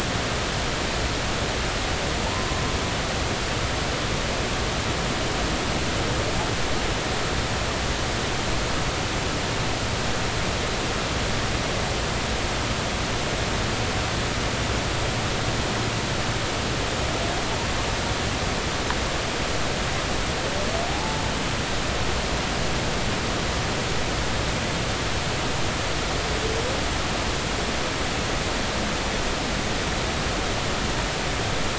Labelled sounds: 20.9	21.2	humpback whale, 0.80 to 0.93 kHz

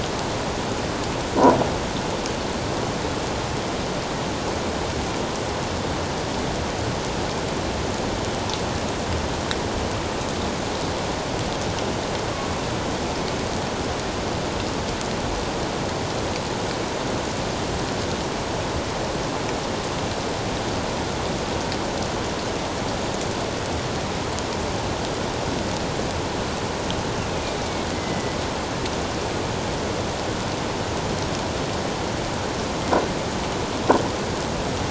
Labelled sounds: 27.3	27.9	killer whale, northern resident, A clan, AA subclan, A04 pod, 2.2 to 2.7 kHz
27.9	28.4	killer whale, northern resident, 1.9 to 2.1 kHz

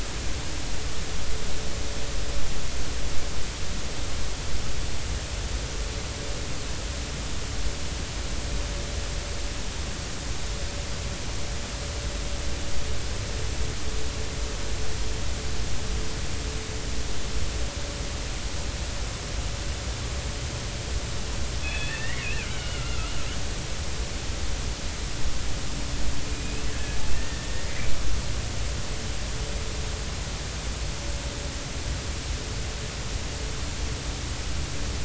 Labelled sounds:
21.6	23.1	killer whale, Bigg's (transient), 1.2 to 3.5 kHz
26.3	26.6	killer whale, Bigg's (transient), 2.4 to 2.7 kHz
27.1	27.9	killer whale, Bigg's (transient), 1.7 to 2.5 kHz

